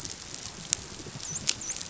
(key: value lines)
label: biophony, dolphin
recorder: SoundTrap 500